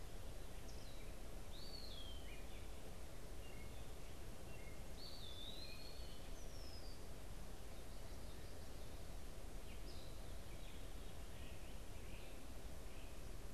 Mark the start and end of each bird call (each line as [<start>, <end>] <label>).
[1.40, 2.30] Eastern Wood-Pewee (Contopus virens)
[3.30, 4.80] unidentified bird
[4.90, 6.10] Eastern Wood-Pewee (Contopus virens)
[6.10, 7.30] Red-winged Blackbird (Agelaius phoeniceus)
[9.50, 13.20] unidentified bird